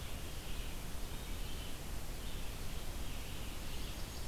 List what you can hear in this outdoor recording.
Red-eyed Vireo, Blackburnian Warbler